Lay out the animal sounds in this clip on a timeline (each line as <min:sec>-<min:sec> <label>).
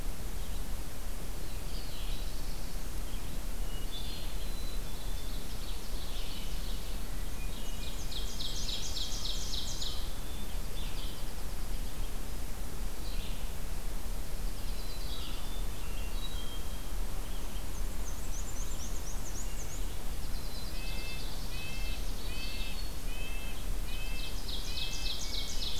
0:01.4-0:25.8 Red-eyed Vireo (Vireo olivaceus)
0:01.5-0:02.9 Black-throated Blue Warbler (Setophaga caerulescens)
0:03.4-0:04.8 Hermit Thrush (Catharus guttatus)
0:04.9-0:06.7 Ovenbird (Seiurus aurocapilla)
0:06.9-0:08.1 Hermit Thrush (Catharus guttatus)
0:07.3-0:09.0 Black-and-white Warbler (Mniotilta varia)
0:07.3-0:10.0 Ovenbird (Seiurus aurocapilla)
0:10.3-0:12.0 Pine Warbler (Setophaga pinus)
0:14.0-0:15.5 Pine Warbler (Setophaga pinus)
0:15.8-0:17.1 Hermit Thrush (Catharus guttatus)
0:17.4-0:19.9 Black-and-white Warbler (Mniotilta varia)
0:19.8-0:21.5 Pine Warbler (Setophaga pinus)
0:20.6-0:25.2 Red-breasted Nuthatch (Sitta canadensis)
0:20.8-0:22.7 Ovenbird (Seiurus aurocapilla)
0:23.8-0:25.8 Ovenbird (Seiurus aurocapilla)
0:24.5-0:25.8 Hermit Thrush (Catharus guttatus)